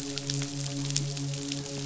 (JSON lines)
{"label": "biophony, midshipman", "recorder": "SoundTrap 500"}